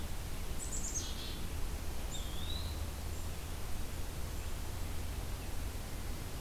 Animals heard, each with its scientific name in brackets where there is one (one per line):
Black-capped Chickadee (Poecile atricapillus)
Eastern Wood-Pewee (Contopus virens)